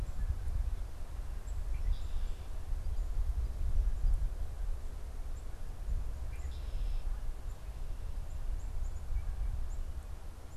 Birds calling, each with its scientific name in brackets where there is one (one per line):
Red-winged Blackbird (Agelaius phoeniceus)
Black-capped Chickadee (Poecile atricapillus)
Canada Goose (Branta canadensis)